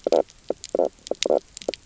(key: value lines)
label: biophony, knock croak
recorder: SoundTrap 300